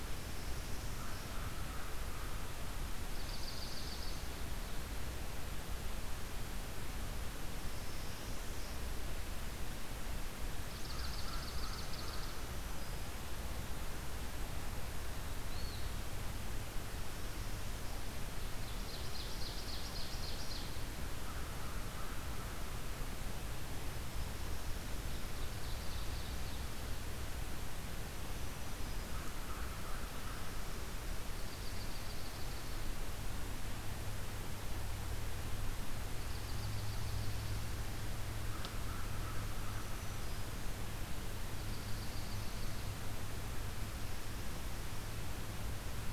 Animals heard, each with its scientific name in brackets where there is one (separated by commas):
Dark-eyed Junco (Junco hyemalis), Eastern Wood-Pewee (Contopus virens), Northern Parula (Setophaga americana), American Crow (Corvus brachyrhynchos), Ovenbird (Seiurus aurocapilla), Black-throated Green Warbler (Setophaga virens)